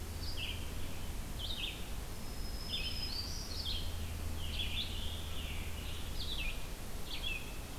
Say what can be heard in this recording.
Red-eyed Vireo, Black-throated Green Warbler, Scarlet Tanager